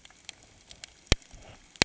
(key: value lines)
label: ambient
recorder: HydroMoth